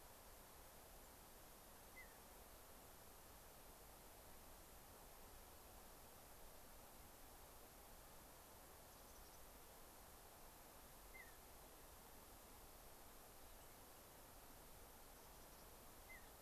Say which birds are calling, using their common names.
Mountain Bluebird, Mountain Chickadee